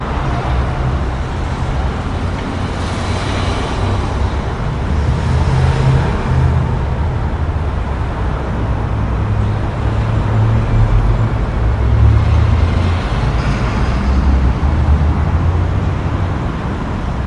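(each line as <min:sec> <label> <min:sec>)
0:00.0 Trucks and other vehicles driving at high speed on the highway. 0:17.2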